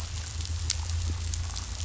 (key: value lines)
label: anthrophony, boat engine
recorder: SoundTrap 500